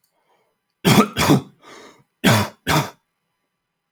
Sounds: Cough